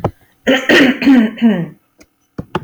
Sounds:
Throat clearing